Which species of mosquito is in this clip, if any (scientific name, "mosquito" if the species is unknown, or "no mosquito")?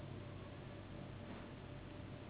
Anopheles gambiae s.s.